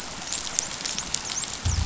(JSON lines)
{"label": "biophony, dolphin", "recorder": "SoundTrap 500"}